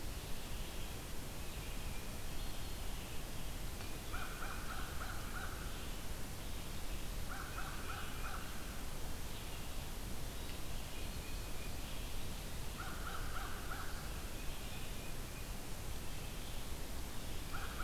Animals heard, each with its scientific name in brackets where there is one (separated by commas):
American Crow (Corvus brachyrhynchos), Red-eyed Vireo (Vireo olivaceus), Tufted Titmouse (Baeolophus bicolor), Black-throated Green Warbler (Setophaga virens)